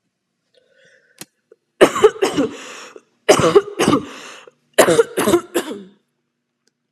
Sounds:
Cough